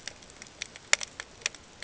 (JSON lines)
{"label": "ambient", "recorder": "HydroMoth"}